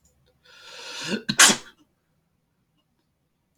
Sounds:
Sneeze